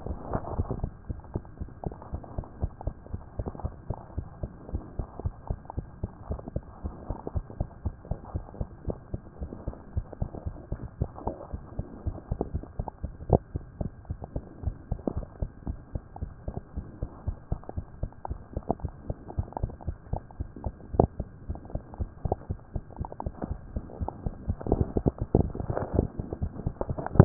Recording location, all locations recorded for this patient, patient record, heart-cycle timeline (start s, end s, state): tricuspid valve (TV)
pulmonary valve (PV)+tricuspid valve (TV)+mitral valve (MV)
#Age: Child
#Sex: Female
#Height: 95.0 cm
#Weight: 15.4 kg
#Pregnancy status: False
#Murmur: Present
#Murmur locations: mitral valve (MV)+pulmonary valve (PV)
#Most audible location: mitral valve (MV)
#Systolic murmur timing: Early-systolic
#Systolic murmur shape: Plateau
#Systolic murmur grading: I/VI
#Systolic murmur pitch: Low
#Systolic murmur quality: Blowing
#Diastolic murmur timing: nan
#Diastolic murmur shape: nan
#Diastolic murmur grading: nan
#Diastolic murmur pitch: nan
#Diastolic murmur quality: nan
#Outcome: Normal
#Campaign: 2014 screening campaign
0.00	0.97	unannotated
0.97	1.08	diastole
1.08	1.20	S1
1.20	1.34	systole
1.34	1.42	S2
1.42	1.60	diastole
1.60	1.70	S1
1.70	1.84	systole
1.84	1.94	S2
1.94	2.12	diastole
2.12	2.22	S1
2.22	2.36	systole
2.36	2.44	S2
2.44	2.60	diastole
2.60	2.72	S1
2.72	2.84	systole
2.84	2.94	S2
2.94	3.12	diastole
3.12	3.22	S1
3.22	3.38	systole
3.38	3.48	S2
3.48	3.64	diastole
3.64	3.74	S1
3.74	3.88	systole
3.88	3.98	S2
3.98	4.16	diastole
4.16	4.26	S1
4.26	4.42	systole
4.42	4.50	S2
4.50	4.72	diastole
4.72	4.84	S1
4.84	4.98	systole
4.98	5.06	S2
5.06	5.24	diastole
5.24	5.34	S1
5.34	5.48	systole
5.48	5.58	S2
5.58	5.76	diastole
5.76	5.86	S1
5.86	6.02	systole
6.02	6.10	S2
6.10	6.28	diastole
6.28	6.40	S1
6.40	6.54	systole
6.54	6.64	S2
6.64	6.84	diastole
6.84	6.94	S1
6.94	7.08	systole
7.08	7.18	S2
7.18	7.34	diastole
7.34	7.46	S1
7.46	7.58	systole
7.58	7.68	S2
7.68	7.84	diastole
7.84	7.94	S1
7.94	8.10	systole
8.10	8.18	S2
8.18	8.34	diastole
8.34	8.44	S1
8.44	8.58	systole
8.58	8.68	S2
8.68	8.86	diastole
8.86	8.98	S1
8.98	9.12	systole
9.12	9.22	S2
9.22	9.40	diastole
9.40	9.52	S1
9.52	9.66	systole
9.66	9.76	S2
9.76	9.96	diastole
9.96	10.06	S1
10.06	10.20	systole
10.20	10.30	S2
10.30	10.46	diastole
10.46	10.56	S1
10.56	10.70	systole
10.70	10.78	S2
10.78	11.00	diastole
11.00	11.10	S1
11.10	11.26	systole
11.26	11.36	S2
11.36	11.54	diastole
11.54	11.64	S1
11.64	11.76	systole
11.76	11.86	S2
11.86	12.06	diastole
12.06	27.25	unannotated